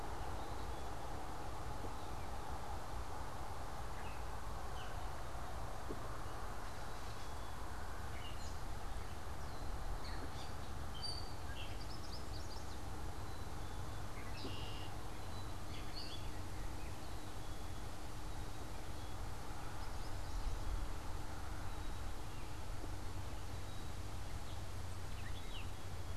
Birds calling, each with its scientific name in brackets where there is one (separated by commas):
Yellow Warbler (Setophaga petechia), Gray Catbird (Dumetella carolinensis), Red-winged Blackbird (Agelaius phoeniceus)